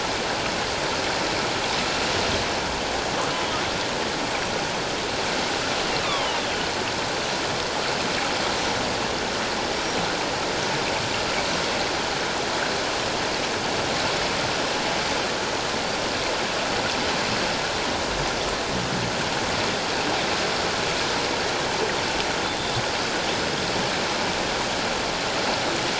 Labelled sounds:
3.3	3.5	killer whale, northern resident, 2.8 to 3.1 kHz
6.0	6.4	killer whale, northern resident, 0.81 to 3.8 kHz
9.7	10.0	killer whale, northern resident, 5.5 to 5.7 kHz
22.4	22.8	killer whale, northern resident, 3.4 to 3.6 kHz

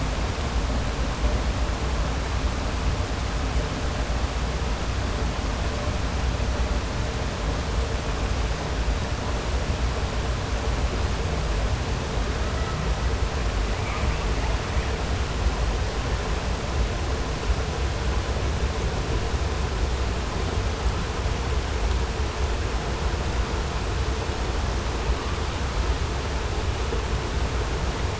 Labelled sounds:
13.7	14.2	killer whale, 0.64 to 2.8 kHz

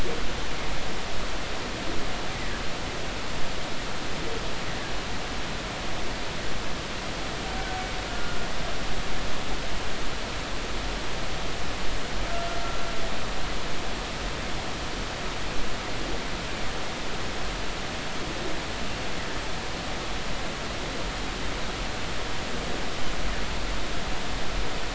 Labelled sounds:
8.1	8.4	humpback whale, 1.3 to 1.5 kHz

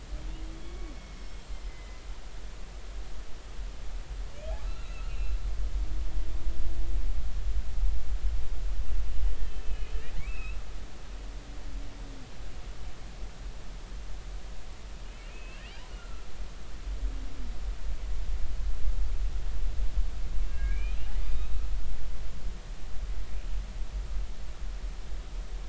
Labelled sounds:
0.5	2.0	humpback whale, 2.0 to 7.7 kHz
4.7	5.1	humpback whale, 1.3 to 2.8 kHz
6.0	6.4	humpback whale, 2.6 to 2.8 kHz
9.4	10.6	humpback whale, 2.0 to 3.2 kHz
15.1	15.6	humpback whale, 2.1 to 2.9 kHz
15.9	16.3	humpback whale, 1.2 to 1.5 kHz
20.5	21.0	humpback whale, 1.6 to 2.6 kHz
21.3	21.6	humpback whale, 2.4 to 3.9 kHz

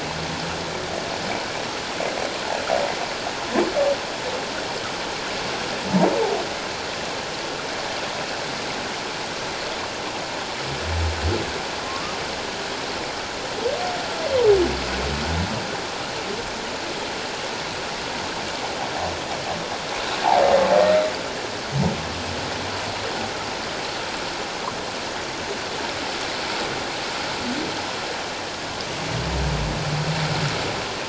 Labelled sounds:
11.8	12.2	humpback whale, 1.0 to 1.3 kHz

